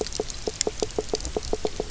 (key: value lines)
label: biophony, knock croak
recorder: SoundTrap 300